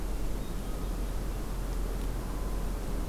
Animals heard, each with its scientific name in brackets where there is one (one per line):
Hermit Thrush (Catharus guttatus)